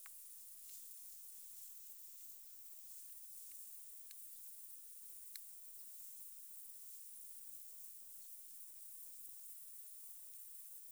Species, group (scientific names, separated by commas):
Tettigonia viridissima, Orthoptera